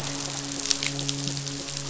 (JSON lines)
{"label": "biophony, midshipman", "recorder": "SoundTrap 500"}